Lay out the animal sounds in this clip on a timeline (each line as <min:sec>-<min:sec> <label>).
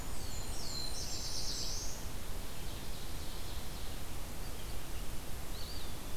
0:00.0-0:02.0 Blackburnian Warbler (Setophaga fusca)
0:00.0-0:05.2 Red-eyed Vireo (Vireo olivaceus)
0:00.0-0:02.2 Black-throated Blue Warbler (Setophaga caerulescens)
0:02.1-0:04.2 Ovenbird (Seiurus aurocapilla)
0:05.5-0:06.2 Eastern Wood-Pewee (Contopus virens)